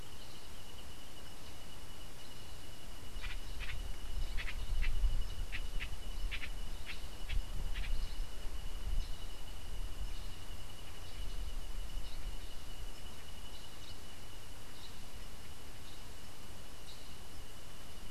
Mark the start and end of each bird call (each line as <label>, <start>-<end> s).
House Wren (Troglodytes aedon), 3.1-8.1 s
Black-headed Saltator (Saltator atriceps), 8.9-15.1 s